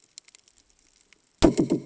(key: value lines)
label: anthrophony, bomb
recorder: HydroMoth